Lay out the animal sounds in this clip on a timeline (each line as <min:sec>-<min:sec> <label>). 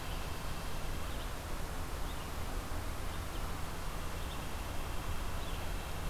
0:00.0-0:01.2 White-breasted Nuthatch (Sitta carolinensis)
0:00.0-0:06.1 Red-eyed Vireo (Vireo olivaceus)
0:03.8-0:06.1 White-breasted Nuthatch (Sitta carolinensis)